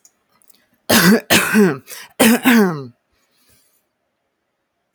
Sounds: Throat clearing